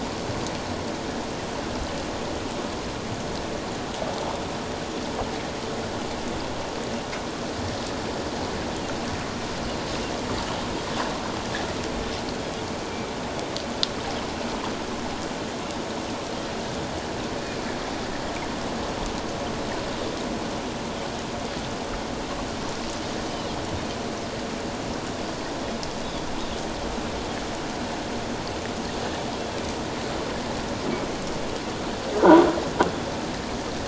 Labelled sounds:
17.4	17.7	Pacific white-sided dolphin, 2.2 to 2.5 kHz
23.2	23.5	Pacific white-sided dolphin, 2.9 to 3.1 kHz

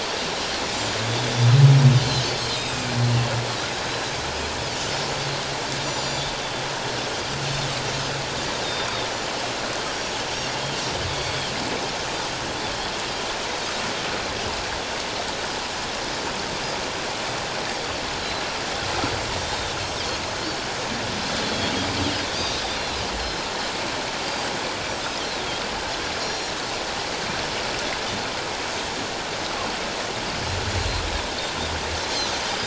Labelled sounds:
0.7	1.0	Pacific white-sided dolphin, 6.9 to 7.4 kHz
2.0	2.9	Pacific white-sided dolphin, 2.3 to 4.3 kHz
5.8	6.3	Pacific white-sided dolphin, 3.3 to 7.2 kHz
8.6	8.9	Pacific white-sided dolphin, 3.5 to 3.8 kHz
9.9	11.4	Pacific white-sided dolphin, 2.2 to 5.7 kHz
19.4	19.8	Pacific white-sided dolphin, 3.4 to 3.8 kHz
21.4	21.7	Pacific white-sided dolphin, 3.2 to 3.5 kHz
22.4	23.0	Pacific white-sided dolphin, 3.5 to 4.3 kHz
26.2	26.5	Pacific white-sided dolphin, 4.1 to 7.1 kHz

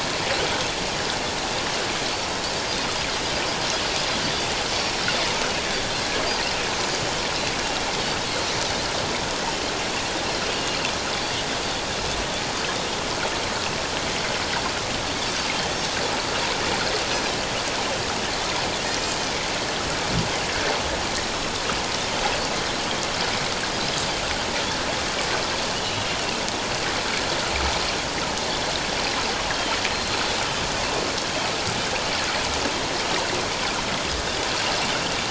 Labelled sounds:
10.4	10.8	Pacific white-sided dolphin, 2.7 to 2.9 kHz
25.8	26.1	Pacific white-sided dolphin, 2.8 to 3.1 kHz
29.5	30.2	Pacific white-sided dolphin, 3.0 to 4.2 kHz

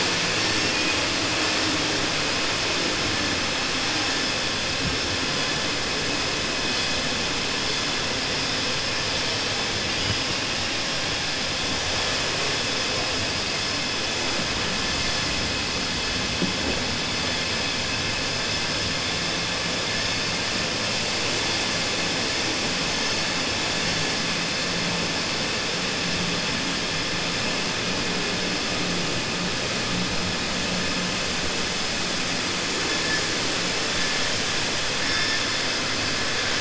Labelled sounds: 0.6	1.0	vessel noise, 1.8 to 3.4 kHz

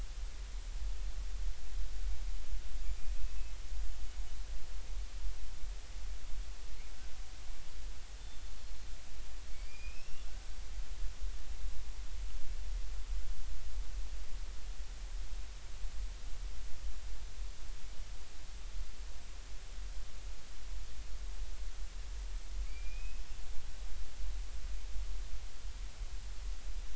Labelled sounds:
8.6	8.9	killer whale, Bigg's (transient), 4.0 to 4.4 kHz
9.5	10.3	killer whale, Bigg's (transient), 2.1 to 5.7 kHz
22.7	23.2	killer whale, Bigg's (transient), 2.1 to 4.9 kHz

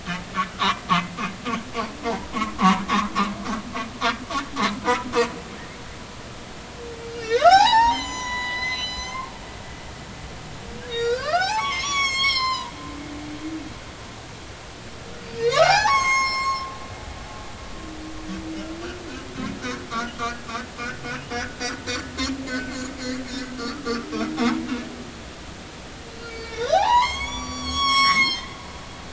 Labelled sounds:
0.6	0.8	humpback whale, 0.90 to 1.4 kHz
2.0	2.3	humpback whale, 0.80 to 1.0 kHz
2.6	2.8	humpback whale, 0.90 to 1.2 kHz
7.1	9.3	humpback whale, 0.80 to 8.0 kHz
10.9	12.7	humpback whale, 0.80 to 8.0 kHz
15.2	16.7	humpback whale, 0.80 to 7.9 kHz
21.2	21.4	humpback whale, 2.8 to 3.0 kHz
23.0	23.2	humpback whale, 2.0 to 2.3 kHz
23.6	23.9	humpback whale, 1.1 to 1.5 kHz
26.2	28.5	humpback whale, 0.80 to 8.0 kHz

